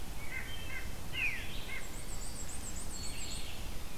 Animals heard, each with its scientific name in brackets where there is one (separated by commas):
Veery (Catharus fuscescens), Red-eyed Vireo (Vireo olivaceus), Black-and-white Warbler (Mniotilta varia), White-breasted Nuthatch (Sitta carolinensis), Black-throated Green Warbler (Setophaga virens)